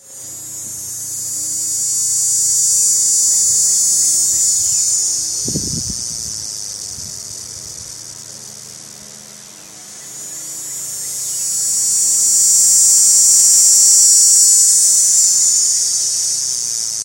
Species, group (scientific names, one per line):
Neotibicen canicularis
Cicadidae